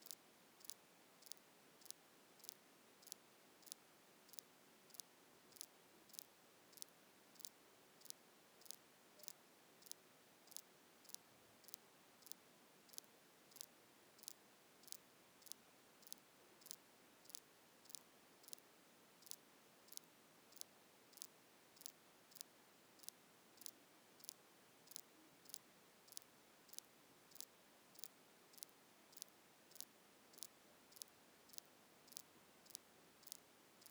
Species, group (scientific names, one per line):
Ctenodecticus major
Orthoptera